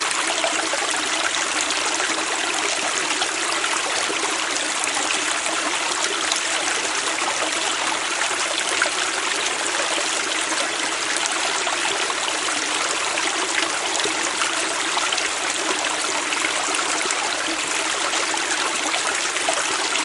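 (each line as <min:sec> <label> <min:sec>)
0:00.0 Water in a river gurgles loudly and continuously. 0:20.0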